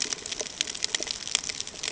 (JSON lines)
{"label": "ambient", "recorder": "HydroMoth"}